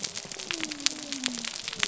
{"label": "biophony", "recorder": "SoundTrap 300"}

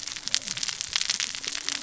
{"label": "biophony, cascading saw", "recorder": "SoundTrap 600 or HydroMoth"}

